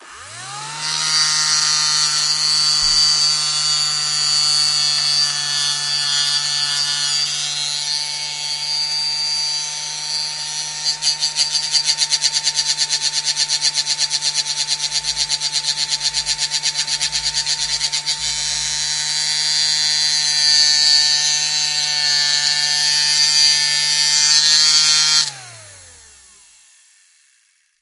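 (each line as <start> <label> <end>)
0.1 A small hand vacuum hums quietly with a soft buzzing sound as it moves across the surface. 25.5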